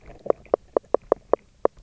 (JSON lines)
{"label": "biophony", "recorder": "SoundTrap 300"}